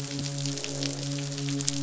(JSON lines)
{"label": "biophony, midshipman", "recorder": "SoundTrap 500"}
{"label": "biophony, croak", "recorder": "SoundTrap 500"}